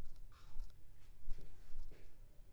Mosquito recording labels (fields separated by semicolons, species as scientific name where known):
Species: Culex pipiens complex; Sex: female; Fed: unfed; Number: one; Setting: cup